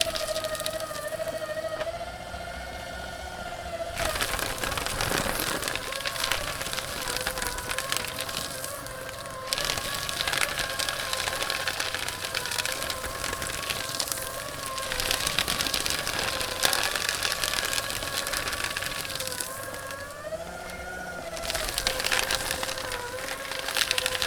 Is this device electric?
yes